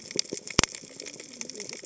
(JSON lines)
{"label": "biophony, cascading saw", "recorder": "HydroMoth"}